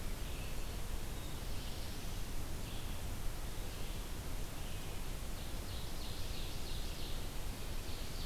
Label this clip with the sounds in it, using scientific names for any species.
Vireo olivaceus, Setophaga caerulescens, Seiurus aurocapilla